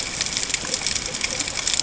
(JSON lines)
{"label": "ambient", "recorder": "HydroMoth"}